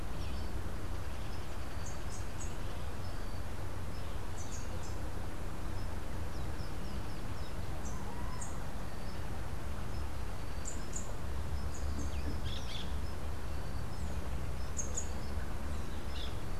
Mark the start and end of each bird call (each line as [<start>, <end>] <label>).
[0.00, 16.58] Rufous-capped Warbler (Basileuterus rufifrons)
[12.38, 13.08] Orange-fronted Parakeet (Eupsittula canicularis)